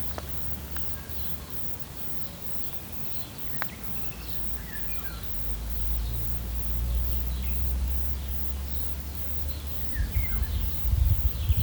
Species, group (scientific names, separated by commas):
Tettigettula pygmea, Cicadidae